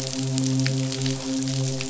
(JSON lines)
{"label": "biophony, midshipman", "recorder": "SoundTrap 500"}